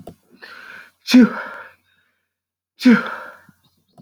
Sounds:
Sneeze